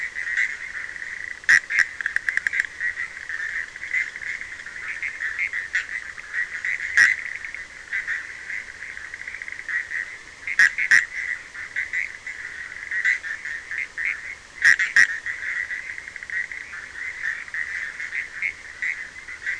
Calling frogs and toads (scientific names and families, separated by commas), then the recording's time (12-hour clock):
Boana bischoffi (Hylidae)
12:30am